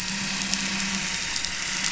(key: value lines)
label: anthrophony, boat engine
recorder: SoundTrap 500